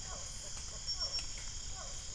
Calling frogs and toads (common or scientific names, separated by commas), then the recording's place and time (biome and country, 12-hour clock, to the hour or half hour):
Physalaemus cuvieri
Cerrado, Brazil, ~6pm